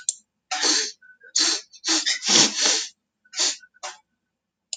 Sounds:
Sniff